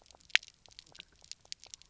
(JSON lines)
{"label": "biophony, knock croak", "recorder": "SoundTrap 300"}